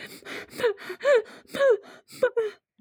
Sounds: Sniff